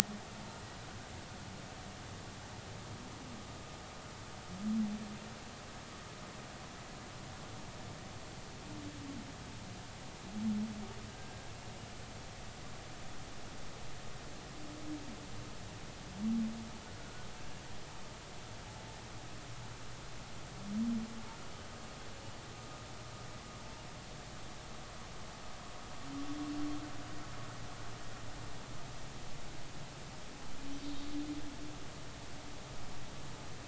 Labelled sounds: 11.1	11.5	humpback whale, 1.5 to 1.7 kHz
17.0	17.3	humpback whale, 1.4 to 1.5 kHz
30.8	31.1	humpback whale, 3.7 to 3.8 kHz

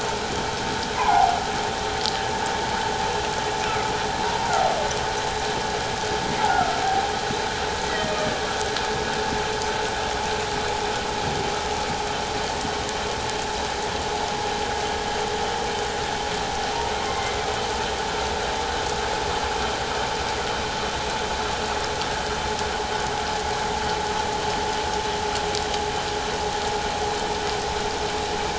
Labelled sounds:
1.0	1.4	humpback whale, 0.78 to 1.1 kHz
3.7	3.9	humpback whale, 1.2 to 1.4 kHz
7.9	8.1	humpback whale, 1.8 to 2.0 kHz
17.1	17.4	humpback whale, 2.0 to 2.2 kHz

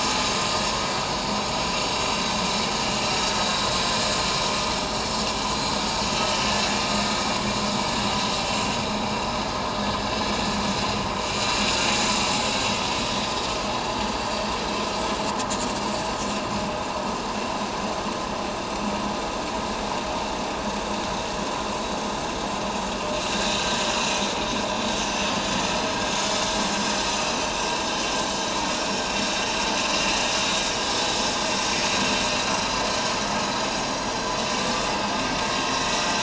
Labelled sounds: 2.4	2.7	vessel noise, 7.2 to 7.4 kHz
14.2	14.5	vessel noise, 3.1 to 3.3 kHz
28.8	29.0	vessel noise, 5.3 to 5.7 kHz
31.6	31.9	vessel noise, 6.4 to 6.5 kHz

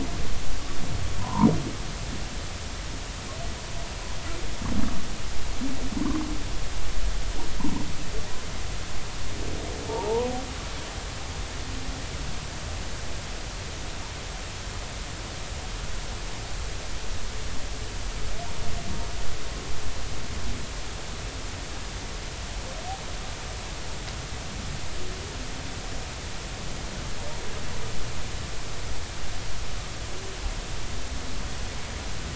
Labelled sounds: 1.2	1.5	humpback whale, 0.86 to 1.1 kHz
9.9	10.3	humpback whale, 0.83 to 1.0 kHz

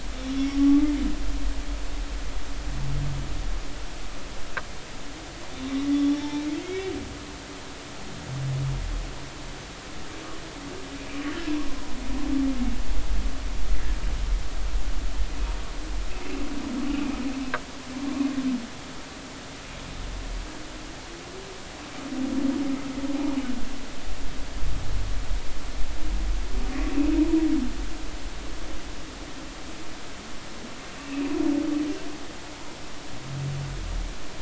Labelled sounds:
0.3	0.8	humpback whale, 1.1 to 3.5 kHz
5.6	6.9	humpback whale, 0.80 to 3.9 kHz
16.9	17.2	humpback whale, 2.3 to 2.6 kHz
31.0	31.3	humpback whale, 2.4 to 2.8 kHz

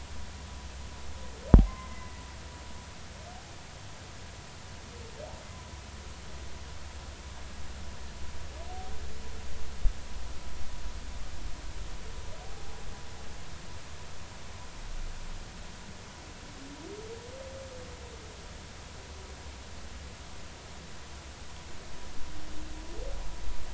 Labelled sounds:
1.7	2.2	humpback whale, 0.99 to 2.1 kHz
12.4	12.8	humpback whale, 0.80 to 0.90 kHz

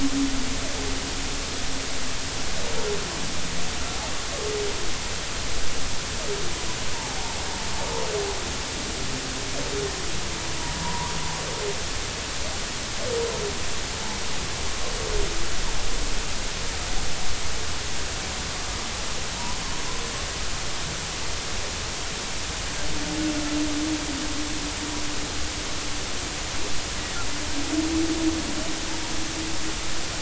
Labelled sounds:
6.9	7.3	humpback whale, 0.80 to 0.99 kHz
10.8	11.1	humpback whale, 0.86 to 1.2 kHz

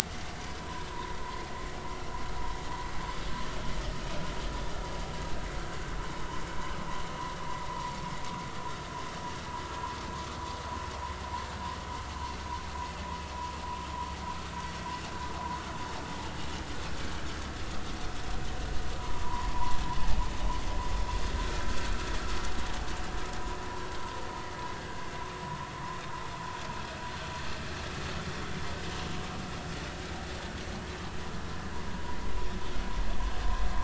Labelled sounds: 0.6	1.2	vessel noise, 0.90 to 1.1 kHz
7.7	8.0	vessel noise, 0.90 to 1.1 kHz
19.2	19.8	vessel noise, 0.90 to 1.1 kHz

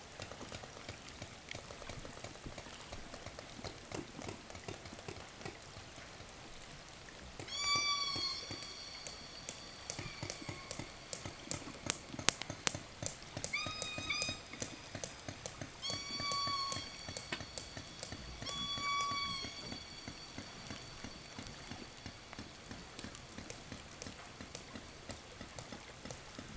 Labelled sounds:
0.0	6.0	killer whale, 0 to 8.0 kHz
7.0	11.6	killer whale, southern resident, call S16, 0 to 8.0 kHz
7.1	20.0	killer whale, 1.8 to 8.0 kHz
12.9	21.1	killer whale, southern resident, 0 to 8.0 kHz

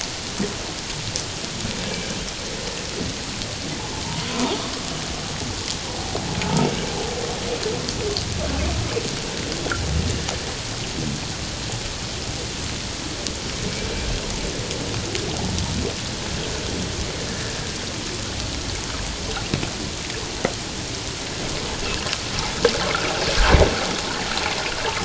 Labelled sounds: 4.3	4.6	humpback whale, 0.78 to 1.1 kHz
6.4	6.7	humpback whale, 0.84 to 0.97 kHz
17.3	17.5	humpback whale, 1.6 to 1.8 kHz
21.8	22.1	humpback whale, 2.5 to 2.9 kHz

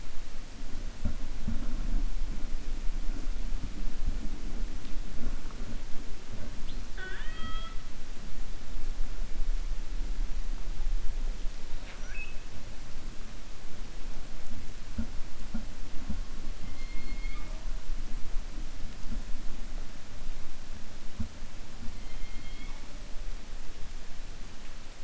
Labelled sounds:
6.8	7.8	killer whale, 0.39 to 4.6 kHz

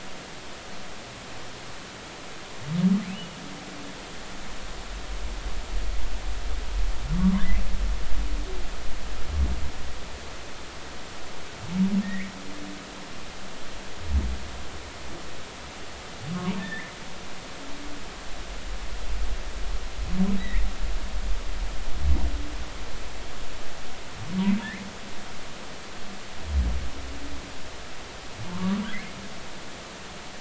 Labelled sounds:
4.1	4.4	humpback whale, 2.8 to 3.0 kHz
7.1	7.4	humpback whale, 0.93 to 1.2 kHz
12.0	12.3	humpback whale, 1.8 to 2.3 kHz
16.3	17.0	humpback whale, 0.80 to 2.2 kHz
20.4	20.7	humpback whale, 1.8 to 2.4 kHz
24.6	24.9	humpback whale, 1.7 to 2.5 kHz
28.5	28.8	humpback whale, 0.99 to 1.3 kHz

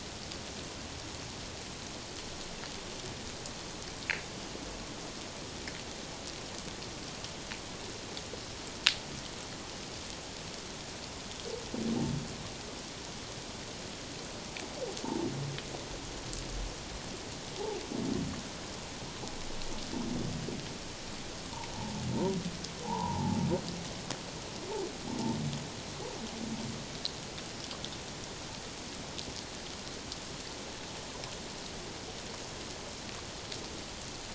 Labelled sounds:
22.8	23.4	humpback whale, 0.78 to 1.1 kHz

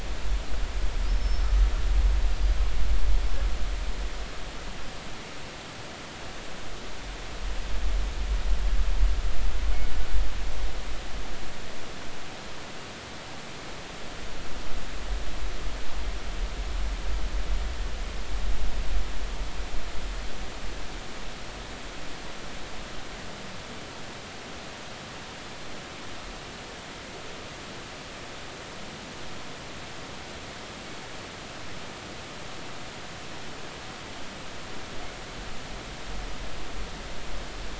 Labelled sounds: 1.1	1.4	killer whale, northern resident, G clan, 5.2 to 5.4 kHz

